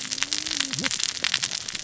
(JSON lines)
{"label": "biophony, cascading saw", "recorder": "SoundTrap 600 or HydroMoth"}